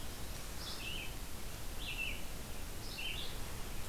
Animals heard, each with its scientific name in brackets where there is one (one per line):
Red-eyed Vireo (Vireo olivaceus)